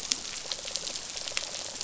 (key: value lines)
label: biophony
recorder: SoundTrap 500